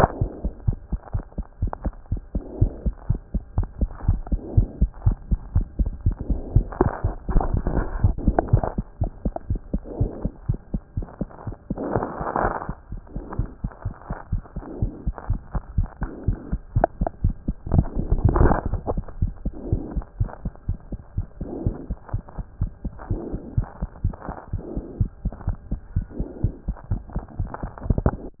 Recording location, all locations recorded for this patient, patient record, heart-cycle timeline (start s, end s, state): aortic valve (AV)
aortic valve (AV)+pulmonary valve (PV)+tricuspid valve (TV)+mitral valve (MV)
#Age: Child
#Sex: Male
#Height: 94.0 cm
#Weight: 10.2 kg
#Pregnancy status: False
#Murmur: Absent
#Murmur locations: nan
#Most audible location: nan
#Systolic murmur timing: nan
#Systolic murmur shape: nan
#Systolic murmur grading: nan
#Systolic murmur pitch: nan
#Systolic murmur quality: nan
#Diastolic murmur timing: nan
#Diastolic murmur shape: nan
#Diastolic murmur grading: nan
#Diastolic murmur pitch: nan
#Diastolic murmur quality: nan
#Outcome: Abnormal
#Campaign: 2014 screening campaign
0.00	0.52	unannotated
0.52	0.66	diastole
0.66	0.78	S1
0.78	0.92	systole
0.92	0.98	S2
0.98	1.14	diastole
1.14	1.24	S1
1.24	1.38	systole
1.38	1.44	S2
1.44	1.62	diastole
1.62	1.72	S1
1.72	1.84	systole
1.84	1.94	S2
1.94	2.10	diastole
2.10	2.22	S1
2.22	2.34	systole
2.34	2.42	S2
2.42	2.60	diastole
2.60	2.72	S1
2.72	2.84	systole
2.84	2.94	S2
2.94	3.08	diastole
3.08	3.20	S1
3.20	3.34	systole
3.34	3.42	S2
3.42	3.56	diastole
3.56	3.68	S1
3.68	3.80	systole
3.80	3.90	S2
3.90	4.06	diastole
4.06	4.20	S1
4.20	4.30	systole
4.30	4.40	S2
4.40	4.56	diastole
4.56	4.68	S1
4.68	4.80	systole
4.80	4.90	S2
4.90	5.06	diastole
5.06	5.16	S1
5.16	5.30	systole
5.30	5.38	S2
5.38	5.54	diastole
5.54	5.66	S1
5.66	5.78	systole
5.78	5.90	S2
5.90	6.06	diastole
6.06	6.16	S1
6.16	6.28	systole
6.28	6.38	S2
6.38	6.49	diastole
6.49	28.40	unannotated